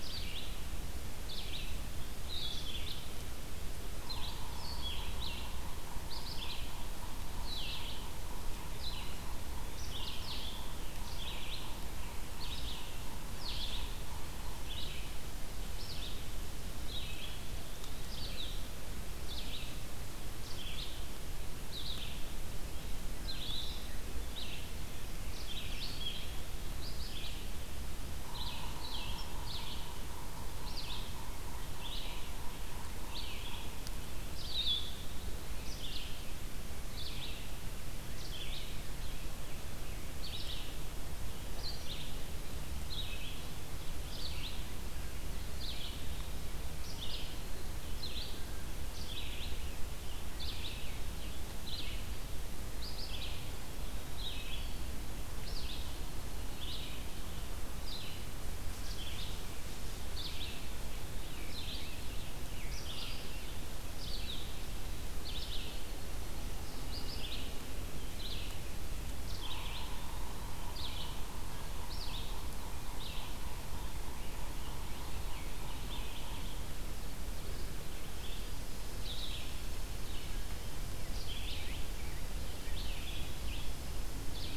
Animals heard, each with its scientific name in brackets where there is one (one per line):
Blue-headed Vireo (Vireo solitarius)
Red-eyed Vireo (Vireo olivaceus)
Scarlet Tanager (Piranga olivacea)
Yellow-bellied Sapsucker (Sphyrapicus varius)